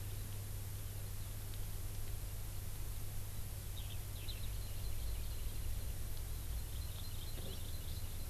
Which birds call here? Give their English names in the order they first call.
Eurasian Skylark, Hawaii Amakihi